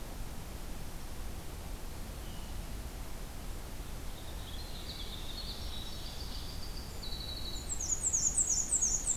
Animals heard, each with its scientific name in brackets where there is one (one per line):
Black-and-white Warbler (Mniotilta varia)
Winter Wren (Troglodytes hiemalis)